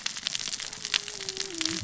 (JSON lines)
{"label": "biophony, cascading saw", "recorder": "SoundTrap 600 or HydroMoth"}